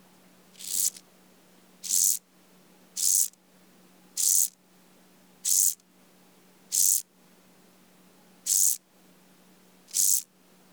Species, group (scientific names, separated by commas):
Chorthippus brunneus, Orthoptera